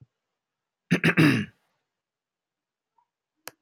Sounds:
Throat clearing